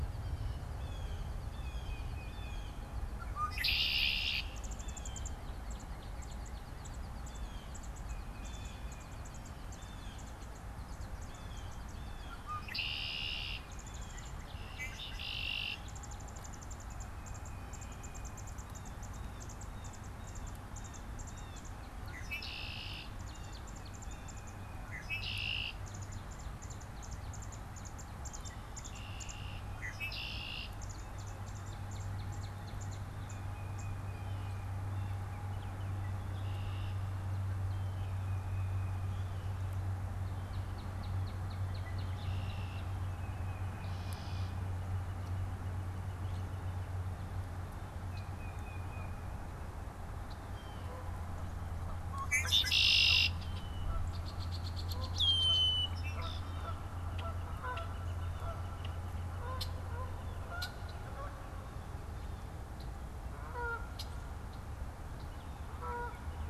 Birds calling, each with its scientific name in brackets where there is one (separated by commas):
Red-winged Blackbird (Agelaius phoeniceus), Canada Goose (Branta canadensis), Tufted Titmouse (Baeolophus bicolor), Blue Jay (Cyanocitta cristata), Northern Cardinal (Cardinalis cardinalis), Northern Flicker (Colaptes auratus)